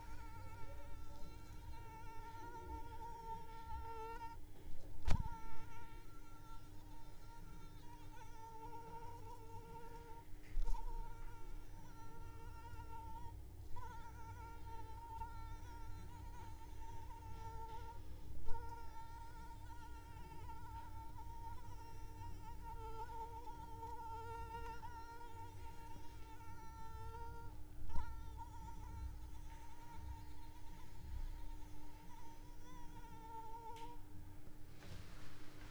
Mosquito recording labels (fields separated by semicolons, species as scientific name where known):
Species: Anopheles arabiensis; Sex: female; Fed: unfed; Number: one; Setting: cup